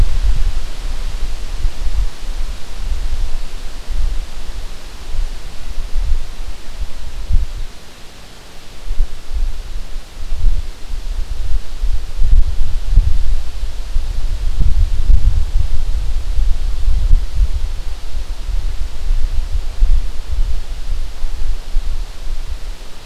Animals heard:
forest ambience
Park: Acadia National Park